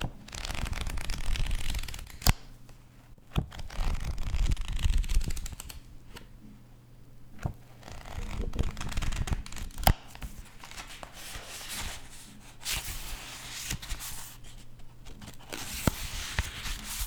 Is someone flipping through paper?
yes